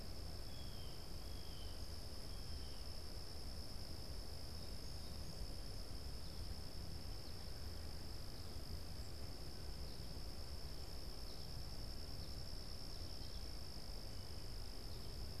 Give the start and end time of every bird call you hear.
0.0s-3.4s: Blue Jay (Cyanocitta cristata)
3.8s-14.3s: American Goldfinch (Spinus tristis)

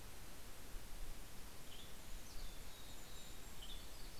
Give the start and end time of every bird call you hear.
0.9s-4.2s: Golden-crowned Kinglet (Regulus satrapa)
1.4s-2.3s: Western Tanager (Piranga ludoviciana)
1.8s-3.8s: Mountain Chickadee (Poecile gambeli)
3.5s-4.2s: Western Tanager (Piranga ludoviciana)

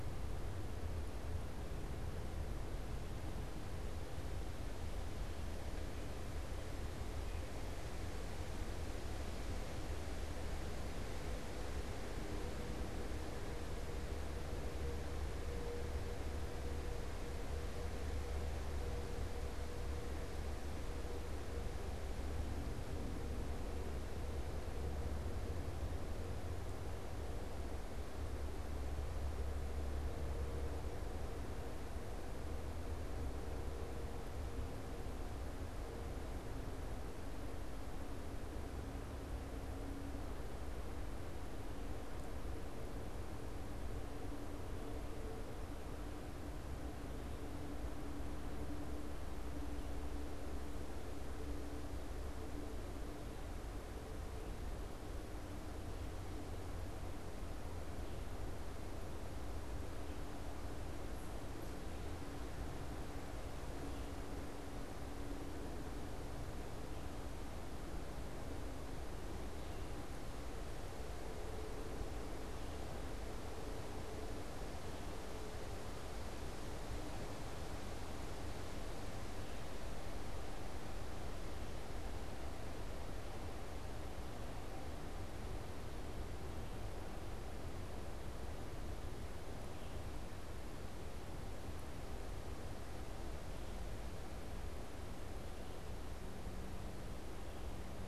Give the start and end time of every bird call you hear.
89.5s-98.1s: Red-eyed Vireo (Vireo olivaceus)

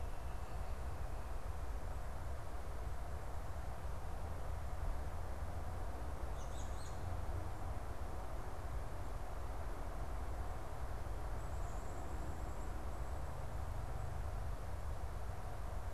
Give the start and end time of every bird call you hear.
6.2s-7.0s: American Robin (Turdus migratorius)

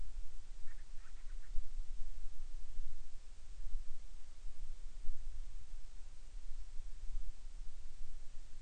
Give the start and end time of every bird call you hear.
0.5s-1.6s: Band-rumped Storm-Petrel (Hydrobates castro)

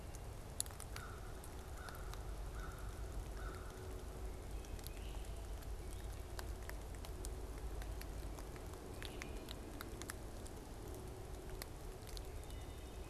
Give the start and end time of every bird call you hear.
0.7s-4.1s: American Crow (Corvus brachyrhynchos)
4.8s-5.3s: Great Crested Flycatcher (Myiarchus crinitus)
8.8s-9.6s: Great Crested Flycatcher (Myiarchus crinitus)
12.1s-13.0s: Wood Thrush (Hylocichla mustelina)

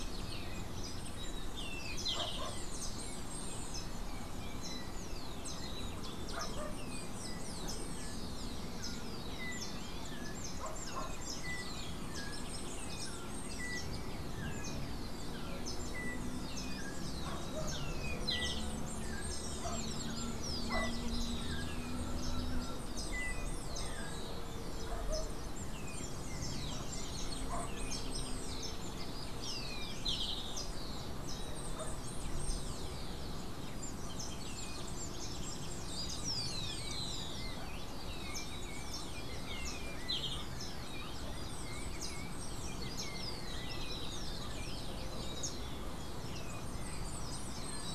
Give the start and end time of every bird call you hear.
1.5s-2.5s: Golden-faced Tyrannulet (Zimmerius chrysops)
6.5s-26.6s: Yellow-backed Oriole (Icterus chrysater)
17.6s-18.7s: Golden-faced Tyrannulet (Zimmerius chrysops)
29.9s-30.6s: Golden-faced Tyrannulet (Zimmerius chrysops)
35.9s-37.5s: Rufous-collared Sparrow (Zonotrichia capensis)
39.9s-40.5s: Golden-faced Tyrannulet (Zimmerius chrysops)

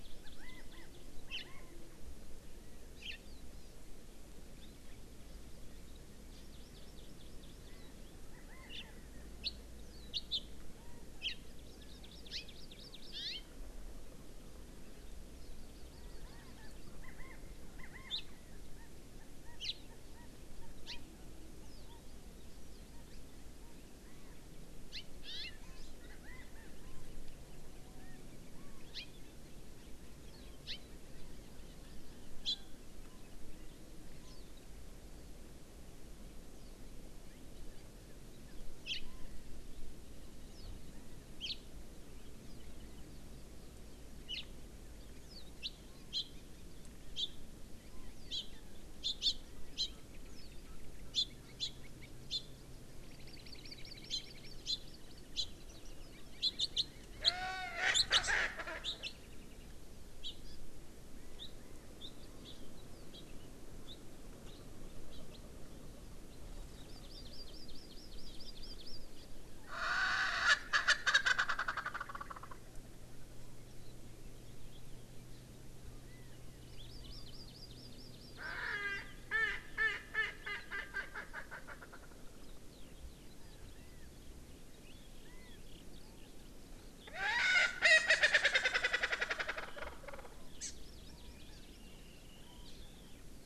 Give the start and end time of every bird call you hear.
0.0s-1.1s: Hawaii Amakihi (Chlorodrepanis virens)
0.3s-0.9s: Chinese Hwamei (Garrulax canorus)
1.2s-1.8s: Chinese Hwamei (Garrulax canorus)
1.3s-1.5s: House Finch (Haemorhous mexicanus)
3.0s-3.2s: House Finch (Haemorhous mexicanus)
6.5s-7.7s: Hawaii Amakihi (Chlorodrepanis virens)
8.3s-8.9s: Chinese Hwamei (Garrulax canorus)
8.7s-8.8s: House Finch (Haemorhous mexicanus)
9.4s-9.5s: House Finch (Haemorhous mexicanus)
10.1s-10.4s: House Finch (Haemorhous mexicanus)
11.2s-11.4s: House Finch (Haemorhous mexicanus)
11.4s-13.1s: Hawaii Amakihi (Chlorodrepanis virens)
12.3s-12.5s: House Finch (Haemorhous mexicanus)
13.1s-13.4s: House Finch (Haemorhous mexicanus)
15.4s-16.9s: Hawaii Amakihi (Chlorodrepanis virens)
15.9s-17.4s: Chinese Hwamei (Garrulax canorus)
17.7s-18.2s: Chinese Hwamei (Garrulax canorus)
18.1s-18.2s: House Finch (Haemorhous mexicanus)
18.7s-18.9s: Chinese Hwamei (Garrulax canorus)
19.4s-19.6s: Chinese Hwamei (Garrulax canorus)
19.6s-19.8s: House Finch (Haemorhous mexicanus)
20.1s-20.3s: Chinese Hwamei (Garrulax canorus)
20.8s-21.0s: Chinese Hwamei (Garrulax canorus)
20.9s-21.0s: House Finch (Haemorhous mexicanus)
24.0s-24.4s: Chinese Hwamei (Garrulax canorus)
24.9s-25.6s: House Finch (Haemorhous mexicanus)
26.2s-27.0s: Chinese Hwamei (Garrulax canorus)
27.8s-28.2s: Chinese Hwamei (Garrulax canorus)
28.9s-29.1s: House Finch (Haemorhous mexicanus)
30.7s-30.8s: House Finch (Haemorhous mexicanus)
32.4s-32.6s: House Finch (Haemorhous mexicanus)
38.8s-39.0s: House Finch (Haemorhous mexicanus)
41.4s-41.6s: House Finch (Haemorhous mexicanus)
44.3s-44.4s: House Finch (Haemorhous mexicanus)
45.6s-45.7s: House Finch (Haemorhous mexicanus)
46.1s-46.2s: House Finch (Haemorhous mexicanus)
47.1s-47.3s: House Finch (Haemorhous mexicanus)
48.3s-48.4s: House Finch (Haemorhous mexicanus)
49.0s-49.4s: House Finch (Haemorhous mexicanus)
49.8s-49.9s: House Finch (Haemorhous mexicanus)
51.1s-51.3s: House Finch (Haemorhous mexicanus)
51.6s-51.7s: House Finch (Haemorhous mexicanus)
52.3s-52.4s: House Finch (Haemorhous mexicanus)
53.1s-55.3s: Hawaii Amakihi (Chlorodrepanis virens)
54.1s-54.2s: House Finch (Haemorhous mexicanus)
54.7s-54.8s: House Finch (Haemorhous mexicanus)
55.3s-55.5s: House Finch (Haemorhous mexicanus)
56.4s-56.7s: House Finch (Haemorhous mexicanus)
57.2s-57.3s: House Finch (Haemorhous mexicanus)
57.2s-58.8s: Erckel's Francolin (Pternistis erckelii)
57.9s-58.2s: House Finch (Haemorhous mexicanus)
58.8s-59.1s: House Finch (Haemorhous mexicanus)
60.2s-60.3s: House Finch (Haemorhous mexicanus)
61.1s-61.9s: Chinese Hwamei (Garrulax canorus)
61.4s-61.5s: House Finch (Haemorhous mexicanus)
62.0s-62.1s: House Finch (Haemorhous mexicanus)
62.4s-62.5s: Hawaii Amakihi (Chlorodrepanis virens)
66.7s-69.0s: Hawaii Amakihi (Chlorodrepanis virens)
69.6s-72.6s: Erckel's Francolin (Pternistis erckelii)
75.9s-76.6s: Chinese Hwamei (Garrulax canorus)
76.7s-79.0s: Hawaii Amakihi (Chlorodrepanis virens)
78.4s-82.1s: Erckel's Francolin (Pternistis erckelii)
82.4s-86.9s: Eurasian Skylark (Alauda arvensis)
83.3s-84.1s: Chinese Hwamei (Garrulax canorus)
85.2s-85.6s: Chinese Hwamei (Garrulax canorus)
87.0s-90.3s: Erckel's Francolin (Pternistis erckelii)
90.6s-91.8s: Hawaii Amakihi (Chlorodrepanis virens)
91.1s-93.1s: Chinese Hwamei (Garrulax canorus)

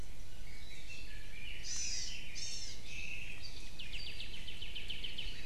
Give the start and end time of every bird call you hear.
0.3s-2.4s: Red-billed Leiothrix (Leiothrix lutea)
0.8s-1.2s: Iiwi (Drepanis coccinea)
1.6s-2.9s: Hawaii Amakihi (Chlorodrepanis virens)
2.8s-3.7s: Omao (Myadestes obscurus)
3.7s-5.4s: Apapane (Himatione sanguinea)

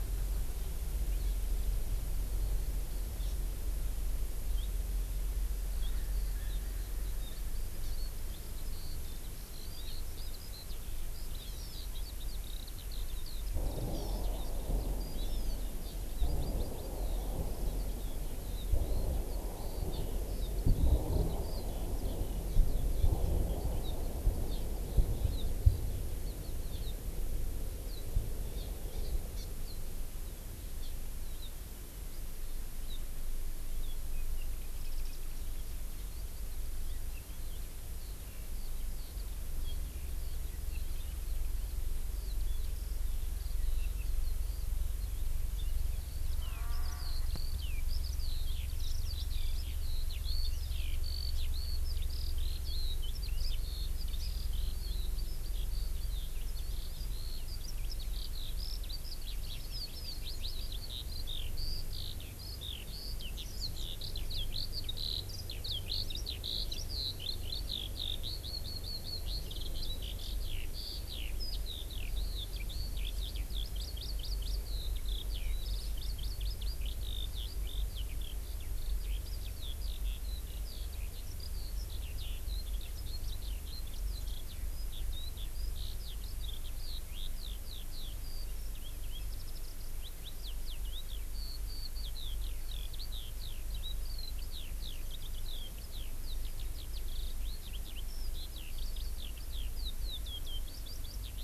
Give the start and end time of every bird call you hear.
3.2s-3.3s: Hawaii Amakihi (Chlorodrepanis virens)
5.7s-26.9s: Eurasian Skylark (Alauda arvensis)
7.8s-7.9s: Hawaii Amakihi (Chlorodrepanis virens)
9.5s-9.9s: Hawaii Amakihi (Chlorodrepanis virens)
11.3s-11.9s: Hawaii Amakihi (Chlorodrepanis virens)
13.9s-14.2s: Hawaii Amakihi (Chlorodrepanis virens)
15.1s-15.6s: Hawaii Amakihi (Chlorodrepanis virens)
16.2s-16.9s: Hawaii Amakihi (Chlorodrepanis virens)
19.9s-20.0s: Hawaii Amakihi (Chlorodrepanis virens)
28.9s-29.5s: Hawaii Amakihi (Chlorodrepanis virens)
36.8s-41.7s: Eurasian Skylark (Alauda arvensis)
42.1s-101.4s: Eurasian Skylark (Alauda arvensis)
73.6s-74.6s: Hawaii Amakihi (Chlorodrepanis virens)
76.0s-76.8s: Hawaii Amakihi (Chlorodrepanis virens)

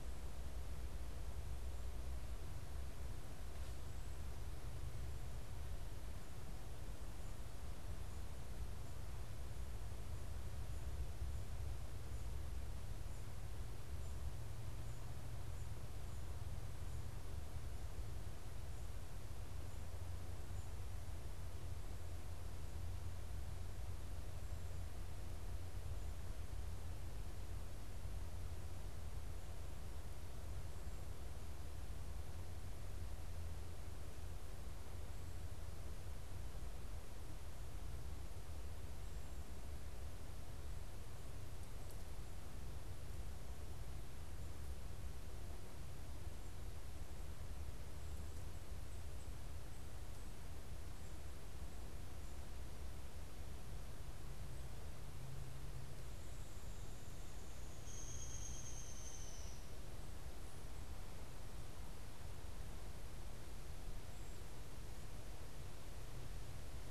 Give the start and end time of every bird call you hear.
57.6s-59.7s: Downy Woodpecker (Dryobates pubescens)

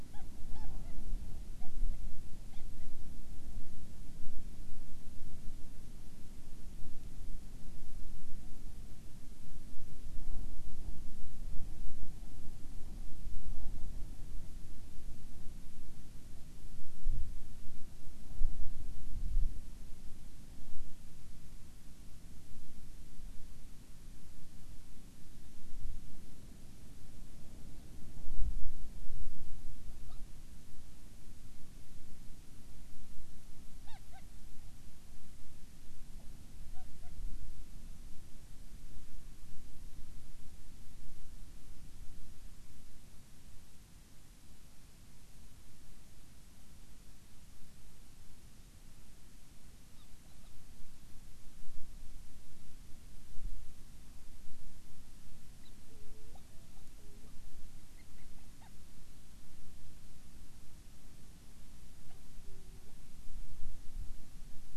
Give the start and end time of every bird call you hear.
0.0s-1.0s: Hawaiian Petrel (Pterodroma sandwichensis)
1.5s-3.0s: Hawaiian Petrel (Pterodroma sandwichensis)
30.0s-30.2s: Hawaiian Petrel (Pterodroma sandwichensis)
33.8s-34.3s: Hawaiian Petrel (Pterodroma sandwichensis)
36.1s-37.3s: Hawaiian Petrel (Pterodroma sandwichensis)
49.9s-50.6s: Hawaiian Petrel (Pterodroma sandwichensis)
55.6s-58.8s: Hawaiian Petrel (Pterodroma sandwichensis)
62.0s-63.0s: Hawaiian Petrel (Pterodroma sandwichensis)

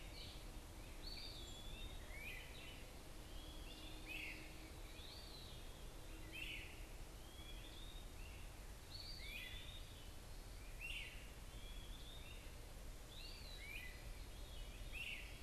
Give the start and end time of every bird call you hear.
0.0s-15.4s: Eastern Wood-Pewee (Contopus virens)
0.0s-15.4s: Great Crested Flycatcher (Myiarchus crinitus)

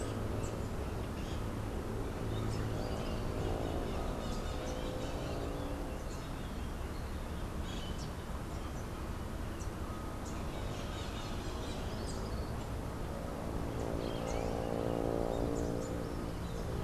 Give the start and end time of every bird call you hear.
0.0s-16.8s: Rufous-capped Warbler (Basileuterus rufifrons)
2.2s-6.0s: Crimson-fronted Parakeet (Psittacara finschi)

